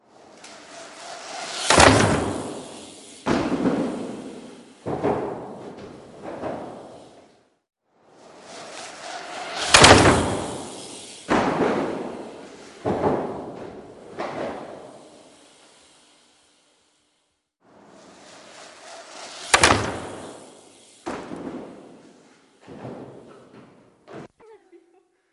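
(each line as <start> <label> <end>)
0.9 A bicycle jumps from ramp to ramp with pauses in between. 7.7
8.3 A bike is riding and jumping from ramp to ramp. 15.4
17.4 A person jumps down a ramp on a bike. 24.8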